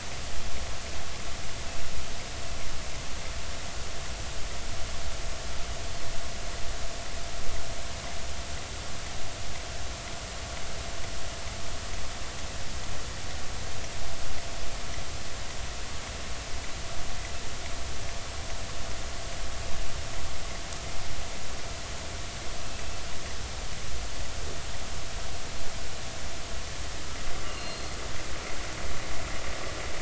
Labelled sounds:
27.5	28.0	killer whale, offshore, 2.7 to 4.3 kHz

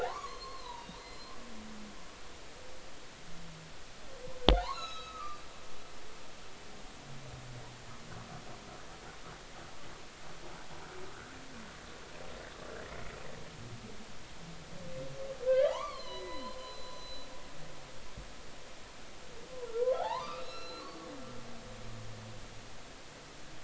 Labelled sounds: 0.0	1.3	humpback whale, 0.80 to 4.4 kHz
4.5	5.4	humpback whale, 0.80 to 6.8 kHz
15.5	17.3	humpback whale, 0.80 to 6.2 kHz
19.7	20.9	humpback whale, 0.80 to 4.3 kHz

